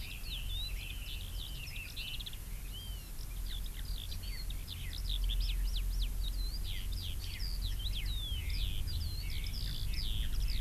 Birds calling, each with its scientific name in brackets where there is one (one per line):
Red-billed Leiothrix (Leiothrix lutea)
Eurasian Skylark (Alauda arvensis)